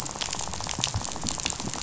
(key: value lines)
label: biophony, rattle
recorder: SoundTrap 500